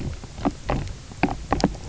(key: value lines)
label: biophony, knock croak
recorder: SoundTrap 300